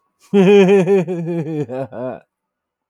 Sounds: Laughter